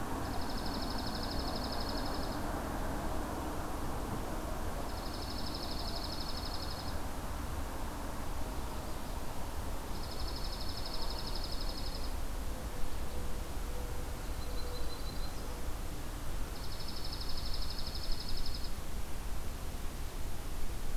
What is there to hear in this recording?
Dark-eyed Junco, Yellow-rumped Warbler